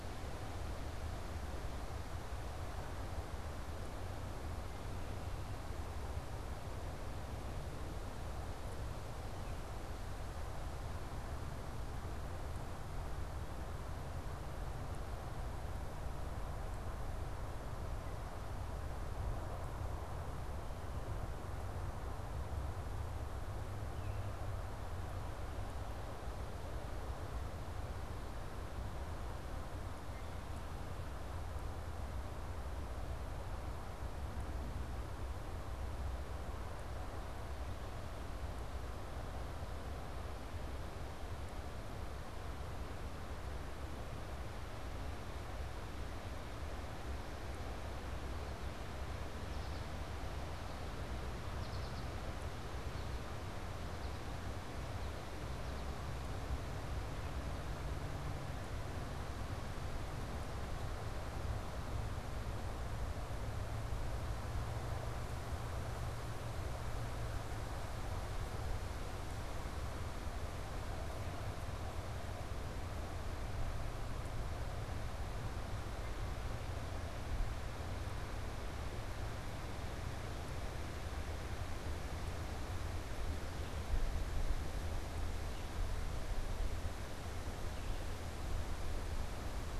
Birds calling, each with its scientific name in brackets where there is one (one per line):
American Goldfinch (Spinus tristis)